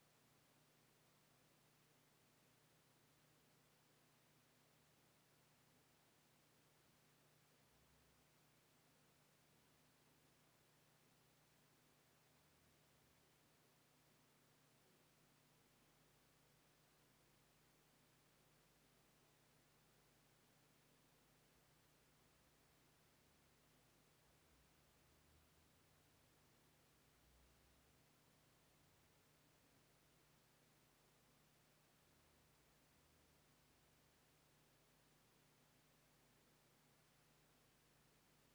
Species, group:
Eumodicogryllus bordigalensis
Orthoptera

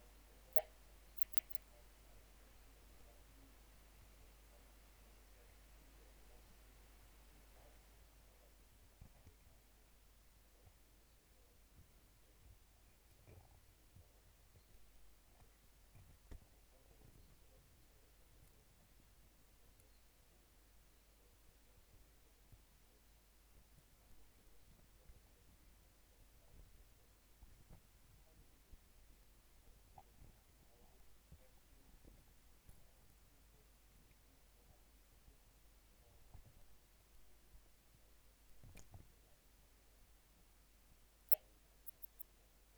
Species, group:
Poecilimon antalyaensis
Orthoptera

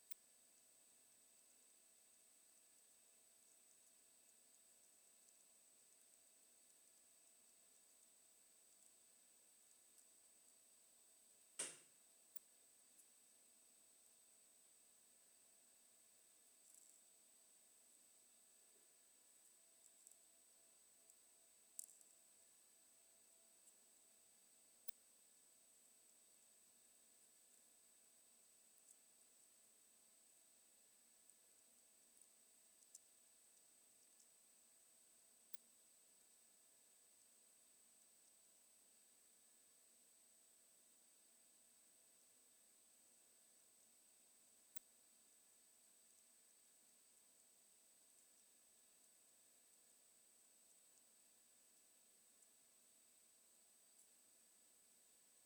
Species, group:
Poecilimon hamatus
Orthoptera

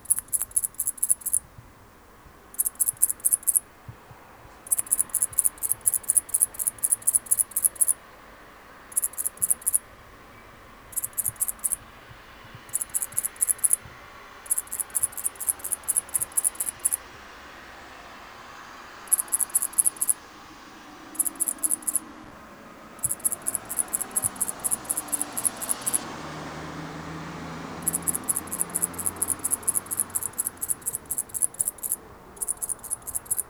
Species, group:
Tettigonia viridissima
Orthoptera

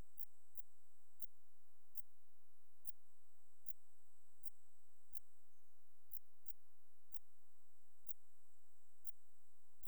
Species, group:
Pholidoptera griseoaptera
Orthoptera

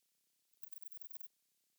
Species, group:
Antaxius chopardi
Orthoptera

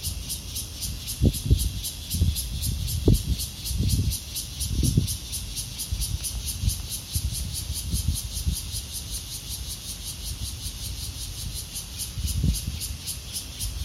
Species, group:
Cryptotympana takasagona
Cicadidae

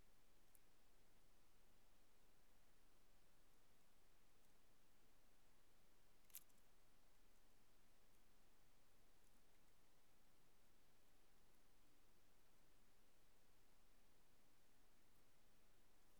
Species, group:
Parnassiana gionica
Orthoptera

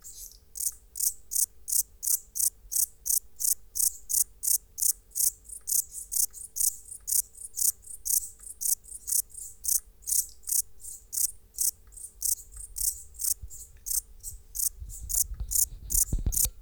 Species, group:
Pholidoptera macedonica
Orthoptera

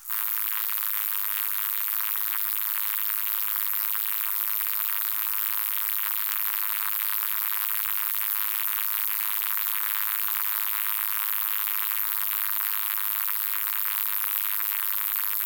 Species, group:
Roeseliana roeselii
Orthoptera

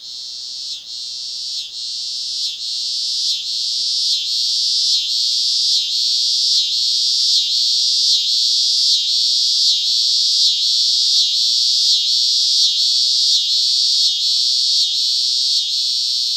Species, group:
Neotibicen pruinosus
Cicadidae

